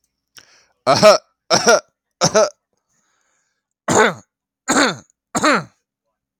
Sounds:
Cough